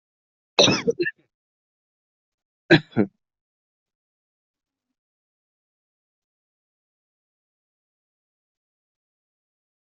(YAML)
expert_labels:
- quality: ok
  cough_type: dry
  dyspnea: false
  wheezing: false
  stridor: false
  choking: false
  congestion: false
  nothing: true
  diagnosis: upper respiratory tract infection
  severity: unknown
age: 25
gender: male
respiratory_condition: false
fever_muscle_pain: false
status: healthy